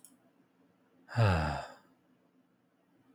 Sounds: Sigh